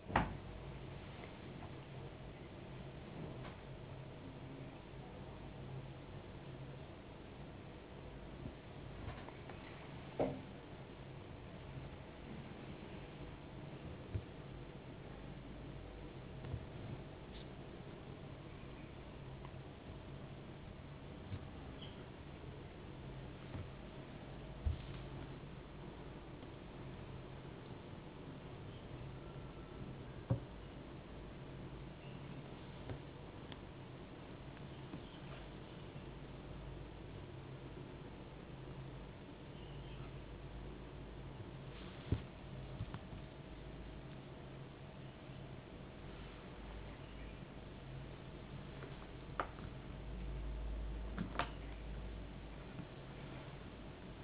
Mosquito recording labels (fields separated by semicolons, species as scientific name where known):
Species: no mosquito; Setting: insect culture